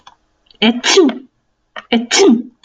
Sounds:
Sneeze